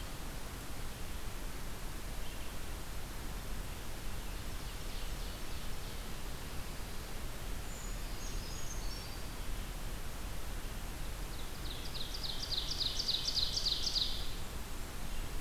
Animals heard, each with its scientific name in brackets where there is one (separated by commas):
Blackburnian Warbler (Setophaga fusca), Ovenbird (Seiurus aurocapilla), Brown Creeper (Certhia americana), Red-eyed Vireo (Vireo olivaceus)